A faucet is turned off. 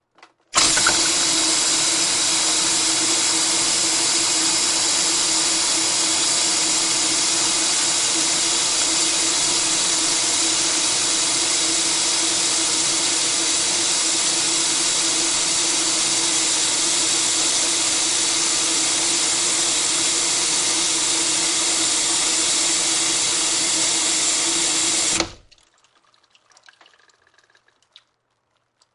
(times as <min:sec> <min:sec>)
0:24.7 0:25.7